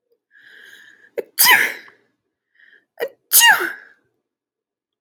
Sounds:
Sneeze